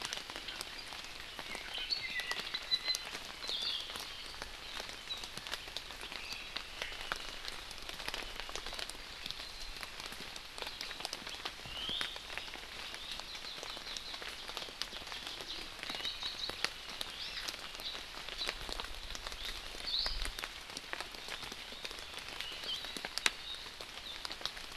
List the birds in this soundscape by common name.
Apapane, Hawaii Akepa, Iiwi, Hawaii Amakihi